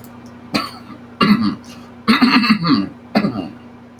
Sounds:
Throat clearing